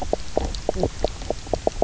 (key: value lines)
label: biophony, knock croak
recorder: SoundTrap 300